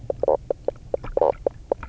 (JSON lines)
{"label": "biophony, knock croak", "recorder": "SoundTrap 300"}